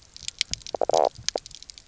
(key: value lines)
label: biophony, knock croak
recorder: SoundTrap 300